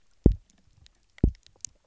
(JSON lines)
{"label": "biophony, double pulse", "recorder": "SoundTrap 300"}